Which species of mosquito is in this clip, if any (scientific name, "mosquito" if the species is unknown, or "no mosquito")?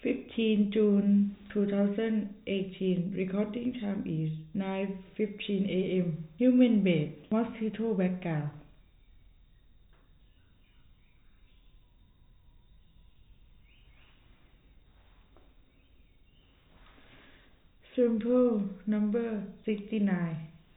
no mosquito